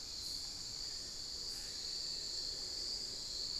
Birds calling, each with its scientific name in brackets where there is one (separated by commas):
Black-faced Antthrush (Formicarius analis)